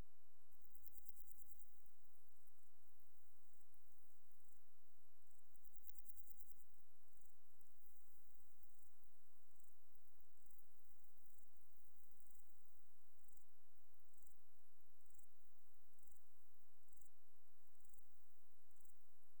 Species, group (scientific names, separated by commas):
Pseudochorthippus parallelus, Orthoptera